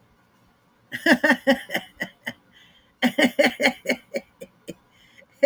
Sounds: Laughter